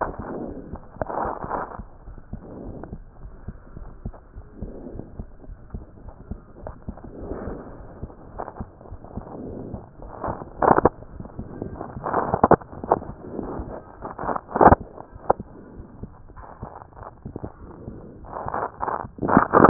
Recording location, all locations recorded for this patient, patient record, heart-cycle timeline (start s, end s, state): aortic valve (AV)
aortic valve (AV)+pulmonary valve (PV)+tricuspid valve (TV)+mitral valve (MV)
#Age: Child
#Sex: Male
#Height: 117.0 cm
#Weight: 12.0 kg
#Pregnancy status: False
#Murmur: Absent
#Murmur locations: nan
#Most audible location: nan
#Systolic murmur timing: nan
#Systolic murmur shape: nan
#Systolic murmur grading: nan
#Systolic murmur pitch: nan
#Systolic murmur quality: nan
#Diastolic murmur timing: nan
#Diastolic murmur shape: nan
#Diastolic murmur grading: nan
#Diastolic murmur pitch: nan
#Diastolic murmur quality: nan
#Outcome: Normal
#Campaign: 2015 screening campaign
0.00	2.42	unannotated
2.42	2.62	diastole
2.62	2.76	S1
2.76	2.89	systole
2.89	3.00	S2
3.00	3.21	diastole
3.21	3.32	S1
3.32	3.47	systole
3.47	3.56	S2
3.56	3.78	diastole
3.78	3.90	S1
3.90	4.03	systole
4.03	4.14	S2
4.14	4.34	diastole
4.34	4.44	S1
4.44	4.61	systole
4.61	4.71	S2
4.71	4.93	diastole
4.93	5.02	S1
5.02	5.16	systole
5.16	5.22	S2
5.22	5.46	diastole
5.46	5.56	S1
5.56	5.72	systole
5.72	5.82	S2
5.82	6.03	diastole
6.03	6.16	S1
6.16	6.28	systole
6.28	6.38	S2
6.38	6.63	diastole
6.63	6.73	S1
6.73	6.86	systole
6.86	6.92	S2
6.92	7.20	diastole
7.20	7.29	S1
7.29	7.44	systole
7.44	7.53	S2
7.53	7.77	diastole
7.77	7.86	S1
7.86	8.00	systole
8.00	8.07	S2
8.07	8.34	diastole
8.34	8.43	S1
8.43	8.59	systole
8.59	8.65	S2
8.65	8.91	diastole
8.91	19.70	unannotated